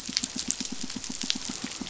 {"label": "biophony, pulse", "recorder": "SoundTrap 500"}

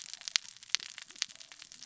{"label": "biophony, cascading saw", "recorder": "SoundTrap 600 or HydroMoth"}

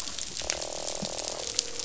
{"label": "biophony, croak", "recorder": "SoundTrap 500"}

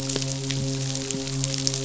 {"label": "biophony, midshipman", "recorder": "SoundTrap 500"}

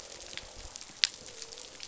{"label": "biophony", "recorder": "SoundTrap 500"}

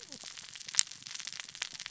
{"label": "biophony, cascading saw", "recorder": "SoundTrap 600 or HydroMoth"}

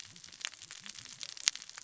{"label": "biophony, cascading saw", "recorder": "SoundTrap 600 or HydroMoth"}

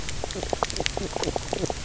{"label": "biophony, knock croak", "recorder": "SoundTrap 300"}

